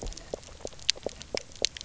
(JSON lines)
{"label": "biophony, knock", "recorder": "SoundTrap 300"}